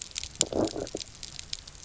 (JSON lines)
{"label": "biophony, low growl", "recorder": "SoundTrap 300"}